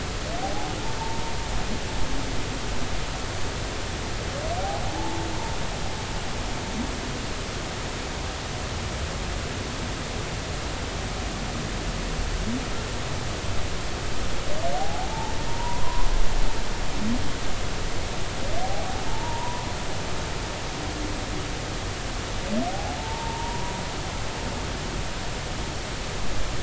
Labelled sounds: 0.4	1.2	humpback whale, 0.80 to 0.96 kHz
4.6	5.2	humpback whale, 0.80 to 0.93 kHz
14.7	16.1	humpback whale, 0.80 to 1.2 kHz
18.6	19.7	humpback whale, 0.80 to 1.0 kHz
22.7	23.7	humpback whale, 0.80 to 0.99 kHz

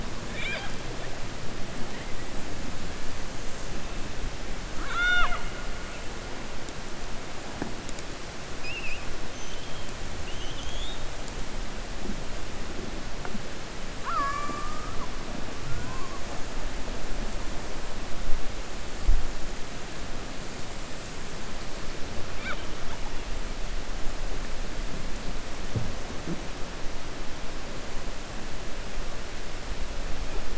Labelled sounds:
4.7	5.5	killer whale, 0.60 to 6.2 kHz

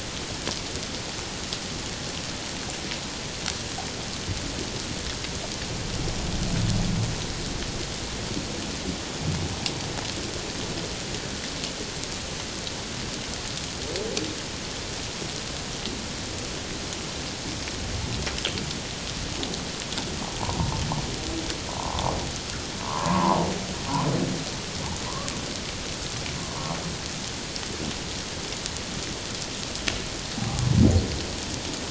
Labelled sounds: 20.4	20.7	humpback whale, 0.81 to 1.1 kHz
21.8	23.4	humpback whale, 0.81 to 1.2 kHz
25.1	25.3	humpback whale, 0.94 to 1.2 kHz
30.4	30.6	humpback whale, 0.78 to 0.88 kHz

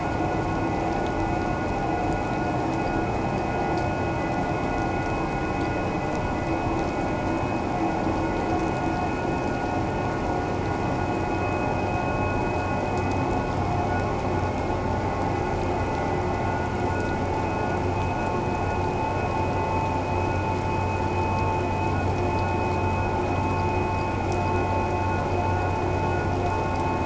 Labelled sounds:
11.4	11.7	vessel noise, 2.5 to 2.6 kHz
16.9	17.2	vessel noise, 1.4 to 1.5 kHz

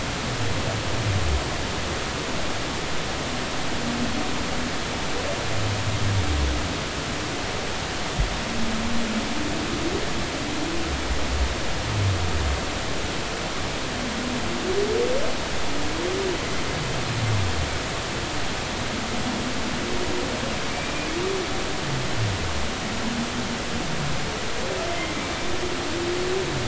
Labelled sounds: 20.7	21.1	humpback whale, 2.3 to 2.5 kHz
24.9	25.2	humpback whale, 2.0 to 2.2 kHz

